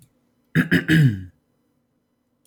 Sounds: Throat clearing